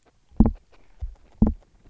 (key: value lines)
label: biophony, grazing
recorder: SoundTrap 300